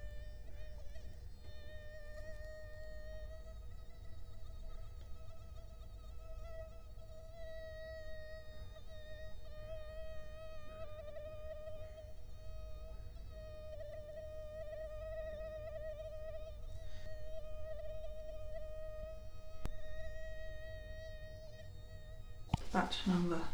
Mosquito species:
Culex quinquefasciatus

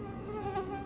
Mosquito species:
Anopheles quadriannulatus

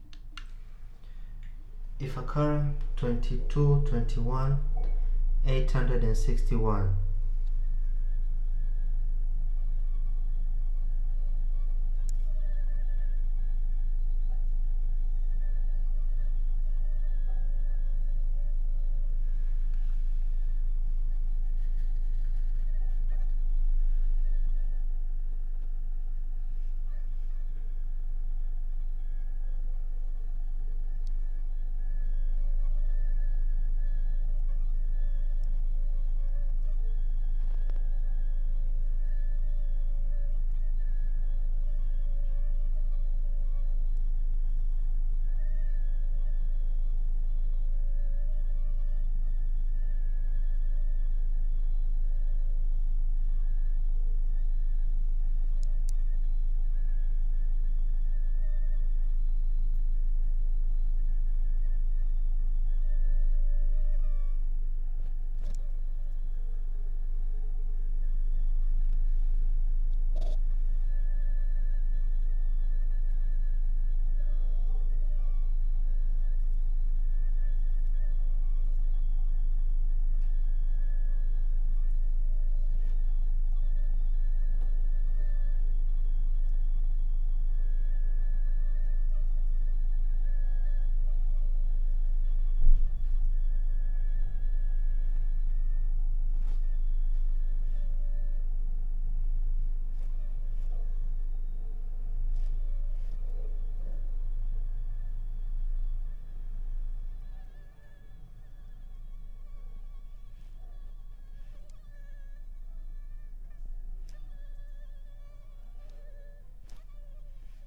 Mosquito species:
Anopheles arabiensis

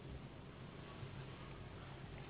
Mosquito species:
Anopheles gambiae s.s.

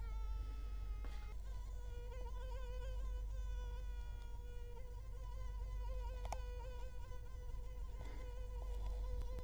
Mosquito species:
Culex quinquefasciatus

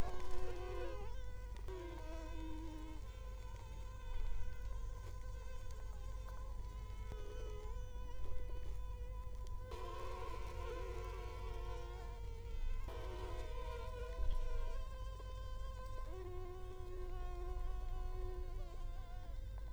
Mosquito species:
Culex quinquefasciatus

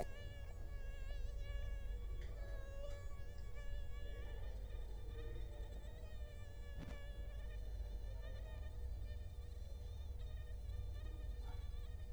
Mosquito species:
Culex quinquefasciatus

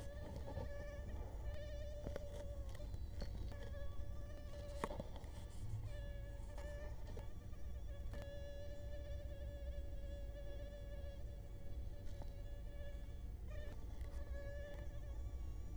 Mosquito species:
Culex quinquefasciatus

